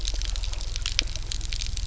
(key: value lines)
label: anthrophony, boat engine
recorder: SoundTrap 300